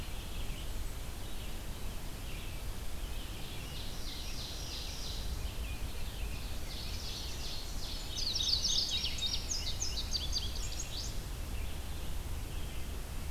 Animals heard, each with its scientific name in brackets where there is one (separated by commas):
Mourning Warbler (Geothlypis philadelphia), Indigo Bunting (Passerina cyanea), Ovenbird (Seiurus aurocapilla), Red-eyed Vireo (Vireo olivaceus)